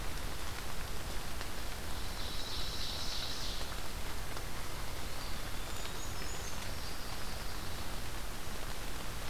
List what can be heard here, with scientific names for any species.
Seiurus aurocapilla, Setophaga pinus, Contopus virens, Certhia americana